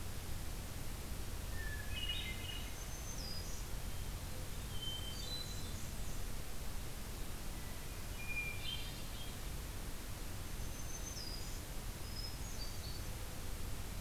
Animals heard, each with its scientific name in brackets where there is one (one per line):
Hermit Thrush (Catharus guttatus)
Black-throated Green Warbler (Setophaga virens)
Black-and-white Warbler (Mniotilta varia)